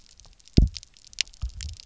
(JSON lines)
{"label": "biophony, double pulse", "recorder": "SoundTrap 300"}